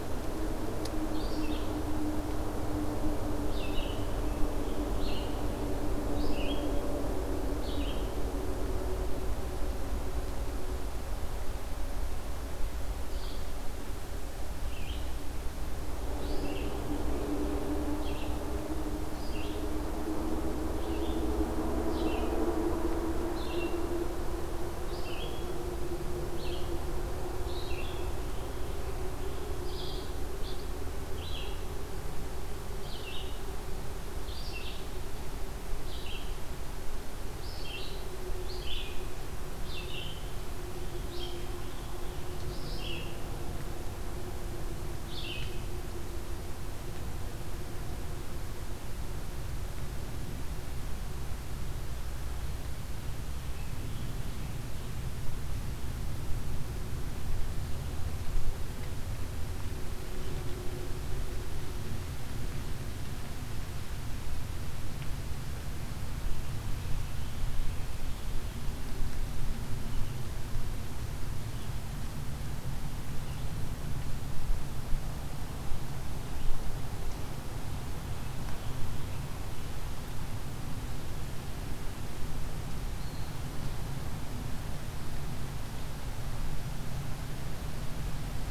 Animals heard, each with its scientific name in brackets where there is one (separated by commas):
Red-eyed Vireo (Vireo olivaceus), Evening Grosbeak (Coccothraustes vespertinus)